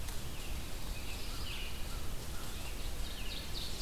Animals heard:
Red-eyed Vireo (Vireo olivaceus)
American Robin (Turdus migratorius)
Pine Warbler (Setophaga pinus)
Ovenbird (Seiurus aurocapilla)

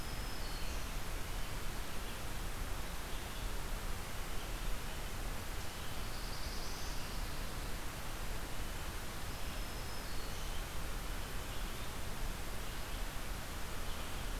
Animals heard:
Red-eyed Vireo (Vireo olivaceus)
Black-throated Green Warbler (Setophaga virens)
Black-throated Blue Warbler (Setophaga caerulescens)

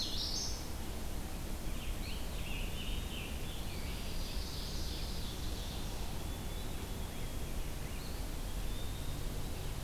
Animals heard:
Common Yellowthroat (Geothlypis trichas)
Red-eyed Vireo (Vireo olivaceus)
Pine Warbler (Setophaga pinus)
Ovenbird (Seiurus aurocapilla)
Rose-breasted Grosbeak (Pheucticus ludovicianus)
Eastern Wood-Pewee (Contopus virens)

